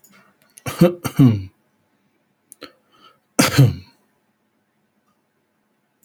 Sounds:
Cough